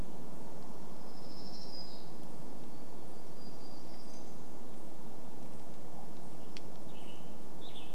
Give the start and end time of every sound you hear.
[0, 6] warbler song
[6, 8] Western Tanager song

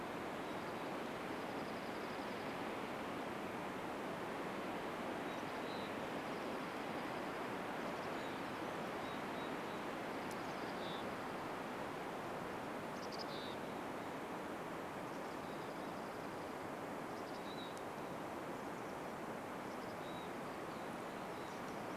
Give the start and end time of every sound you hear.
[0, 4] Dark-eyed Junco song
[4, 6] Mountain Chickadee call
[6, 8] Dark-eyed Junco song
[8, 22] Mountain Chickadee call
[10, 12] Dark-eyed Junco song
[14, 18] Dark-eyed Junco song
[18, 22] Chestnut-backed Chickadee call

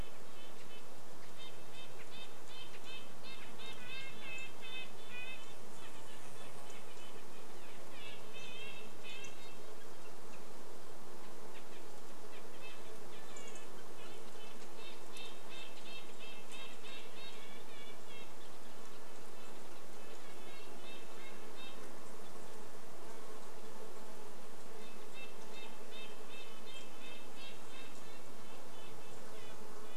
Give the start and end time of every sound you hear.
[0, 10] Red-breasted Nuthatch song
[0, 26] insect buzz
[2, 8] Red-breasted Nuthatch call
[10, 16] Red-breasted Nuthatch call
[12, 14] Dark-eyed Junco call
[12, 22] Red-breasted Nuthatch song
[18, 20] Red-breasted Nuthatch call
[24, 30] Red-breasted Nuthatch song
[28, 30] insect buzz

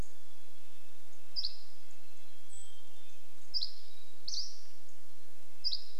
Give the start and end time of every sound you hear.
[0, 6] Dusky Flycatcher song
[0, 6] Red-breasted Nuthatch song
[2, 4] Hermit Thrush song

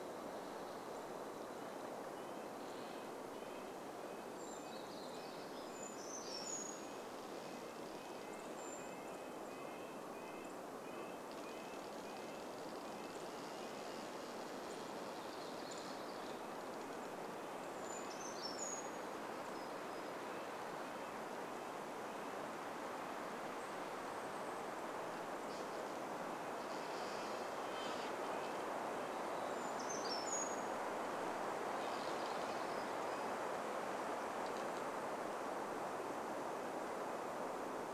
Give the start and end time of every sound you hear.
[0, 14] Red-breasted Nuthatch song
[2, 4] tree creak
[4, 6] warbler song
[4, 10] Brown Creeper call
[6, 8] tree creak
[10, 12] tree creak
[14, 18] tree creak
[14, 18] warbler song
[16, 20] Brown Creeper song
[16, 24] Red-breasted Nuthatch song
[22, 26] Golden-crowned Kinglet call
[24, 30] tree creak
[26, 34] Red-breasted Nuthatch song
[28, 32] Brown Creeper call
[32, 34] warbler song
[36, 38] Red-breasted Nuthatch song

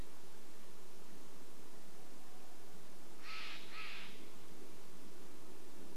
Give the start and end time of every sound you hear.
[0, 6] airplane
[2, 4] Steller's Jay call
[4, 6] Red-breasted Nuthatch song

